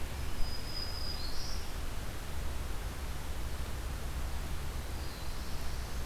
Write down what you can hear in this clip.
Black-throated Green Warbler, Black-throated Blue Warbler